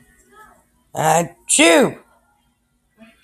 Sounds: Sneeze